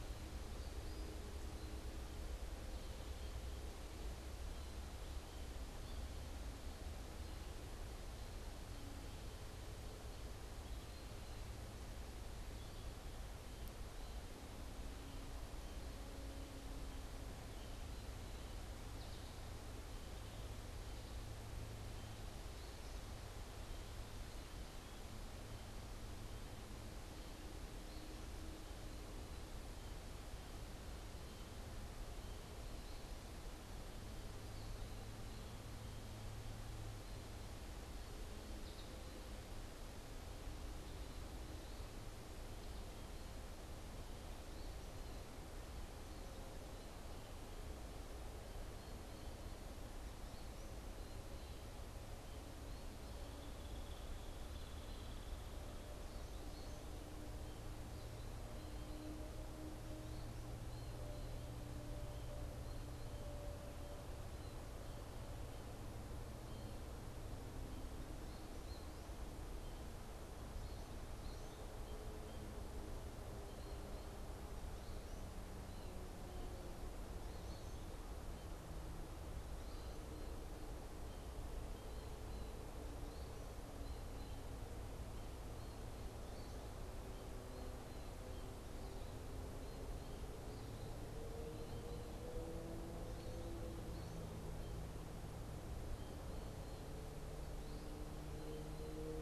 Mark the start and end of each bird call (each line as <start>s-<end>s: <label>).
0.0s-74.6s: American Goldfinch (Spinus tristis)
53.0s-55.9s: Hairy Woodpecker (Dryobates villosus)
75.4s-99.2s: American Goldfinch (Spinus tristis)